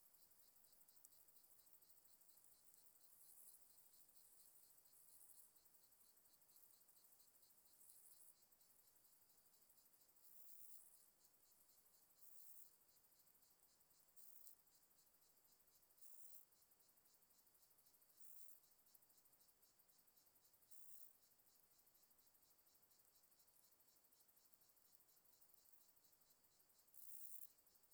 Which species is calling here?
Chorthippus jacobsi